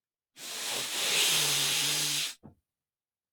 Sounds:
Sniff